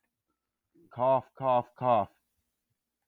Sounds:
Cough